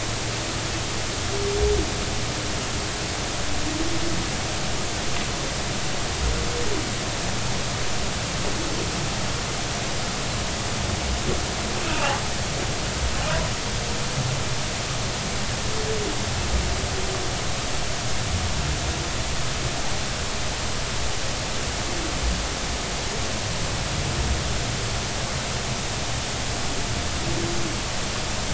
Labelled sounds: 11.9	12.2	humpback whale, 0.80 to 0.96 kHz

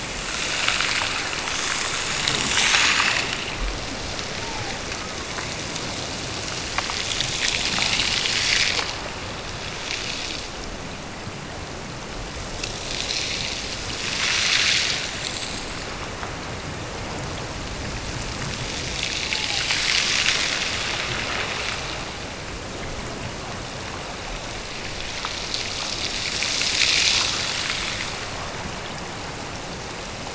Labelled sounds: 4.3	5.5	killer whale, Bigg's (transient), Gulf of Alaska transient, 0.66 to 1.4 kHz
19.3	19.8	killer whale, Bigg's (transient), Gulf of Alaska transient, 0.55 to 1.1 kHz

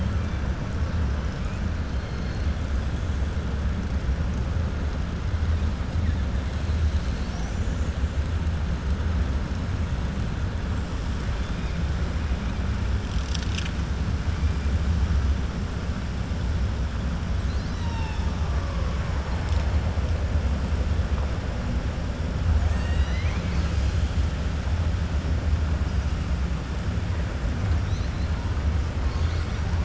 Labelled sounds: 17.4	18.3	killer whale, 0.89 to 6.2 kHz

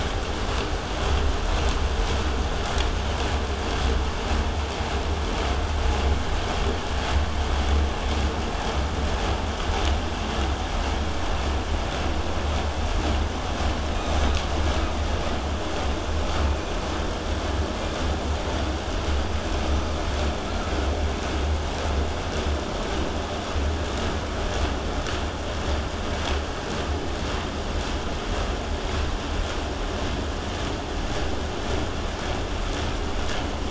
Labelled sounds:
13.9	14.4	killer whale, southern resident, 2.2 to 7.6 kHz

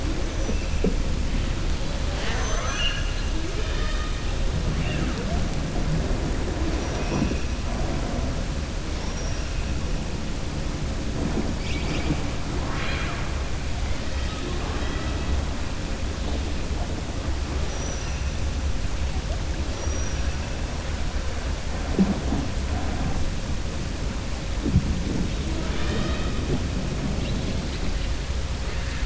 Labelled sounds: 2.0	4.2	killer whale, southern resident, 0.53 to 6.7 kHz
6.7	7.3	killer whale, southern resident, 5.1 to 6.0 kHz
8.9	9.5	killer whale, southern resident, 4.8 to 5.8 kHz
12.5	13.3	killer whale, southern resident, 0.74 to 4.3 kHz

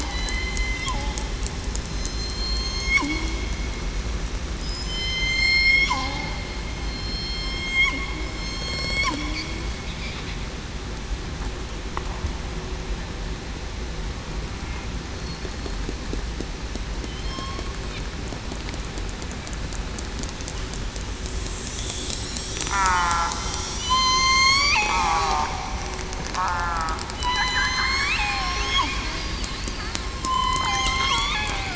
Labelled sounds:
0.1	0.5	killer whale, southern resident, 2.9 to 3.1 kHz
2.1	3.1	killer whale, southern resident, 3.1 to 8.0 kHz
4.6	5.9	killer whale, southern resident, 3.0 to 8.0 kHz
6.9	9.1	killer whale, southern resident, 2.0 to 8.0 kHz
15.4	15.7	killer whale, southern resident, 4.2 to 4.3 kHz
17.2	17.6	killer whale, southern resident, 1.0 to 3.4 kHz
21.7	22.1	killer whale, southern resident, 3.4 to 3.6 kHz
22.7	25.2	killer whale, southern resident, 0.73 to 7.1 kHz
26.3	28.6	killer whale, southern resident, 0.68 to 7.2 kHz
30.3	31.7	killer whale, southern resident, 0.98 to 5.8 kHz

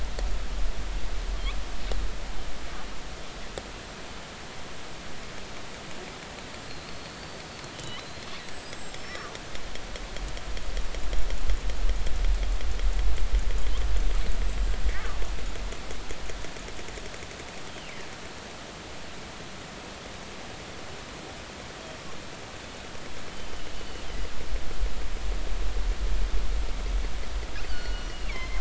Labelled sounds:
6.8	8.3	killer whale, northern resident, 2.9 to 4.6 kHz
7.7	8.0	killer whale, northern resident, G clan, GG subclan, call N45, 2.9 to 3.2 kHz
8.3	9.4	killer whale, northern resident, G clan, call N25, 1.1 to 8.0 kHz
23.7	24.0	killer whale, northern resident, G clan, GG subclan, call N23ii, 4.3 to 4.5 kHz
27.7	28.6	killer whale, northern resident, G clan, GG subclan, call N23ii, 1.4 to 4.7 kHz

